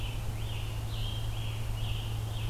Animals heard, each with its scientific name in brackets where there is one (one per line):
Scarlet Tanager (Piranga olivacea)
Red-eyed Vireo (Vireo olivaceus)